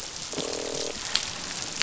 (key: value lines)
label: biophony, croak
recorder: SoundTrap 500